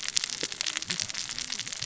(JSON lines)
{"label": "biophony, cascading saw", "recorder": "SoundTrap 600 or HydroMoth"}